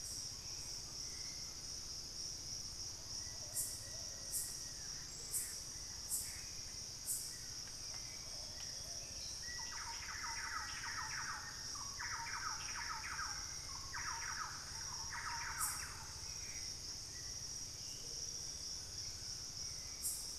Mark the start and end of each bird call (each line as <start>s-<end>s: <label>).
0.3s-1.9s: Hauxwell's Thrush (Turdus hauxwelli)
3.2s-5.2s: Plain-winged Antshrike (Thamnophilus schistaceus)
3.3s-9.3s: Plumbeous Pigeon (Patagioenas plumbea)
5.1s-7.1s: Gray Antbird (Cercomacra cinerascens)
7.1s-9.7s: Hauxwell's Thrush (Turdus hauxwelli)
9.3s-11.8s: Black-faced Antthrush (Formicarius analis)
9.3s-16.3s: Thrush-like Wren (Campylorhynchus turdinus)
16.0s-19.1s: Hauxwell's Thrush (Turdus hauxwelli)